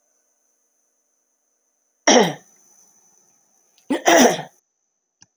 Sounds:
Throat clearing